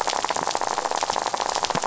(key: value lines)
label: biophony, rattle
recorder: SoundTrap 500